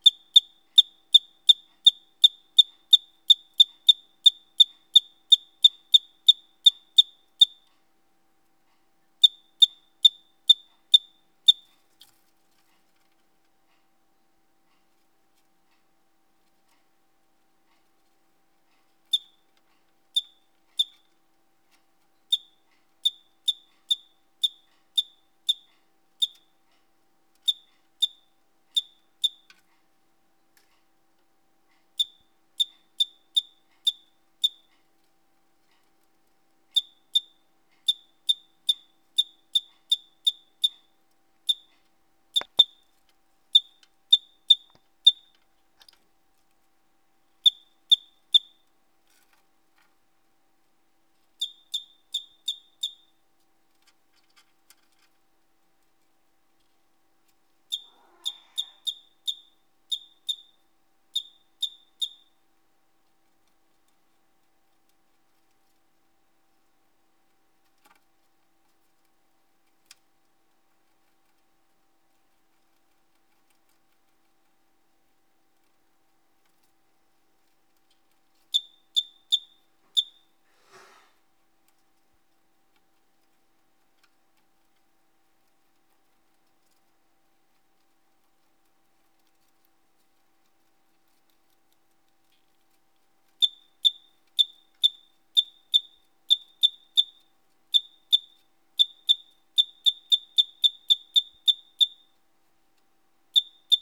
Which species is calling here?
Eugryllodes escalerae